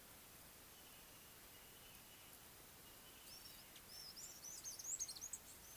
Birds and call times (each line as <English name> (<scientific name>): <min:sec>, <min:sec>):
Mariqua Sunbird (Cinnyris mariquensis): 0:04.7